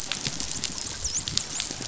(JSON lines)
{"label": "biophony, dolphin", "recorder": "SoundTrap 500"}